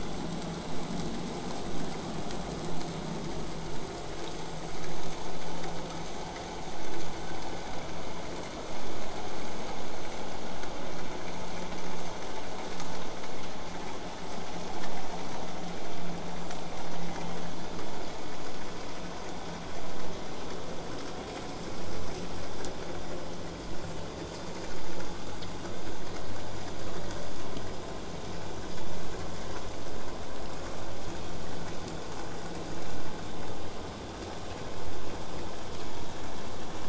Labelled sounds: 17.0	17.8	killer whale, southern resident, 1.7 to 3.9 kHz
23.8	24.0	killer whale, southern resident, J pod, call S05, 6.7 to 8.0 kHz

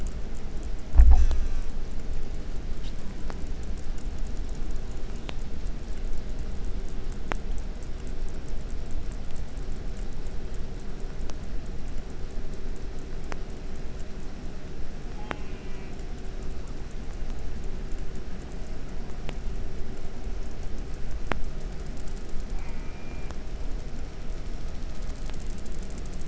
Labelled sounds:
1.1	1.8	killer whale, southern resident, J pod, call S04, 0.26 to 8.0 kHz
15.1	16.0	killer whale, southern resident, J pod, call S04, 0.32 to 3.6 kHz
22.5	23.4	killer whale, southern resident, J pod, call S04, 0.29 to 2.9 kHz

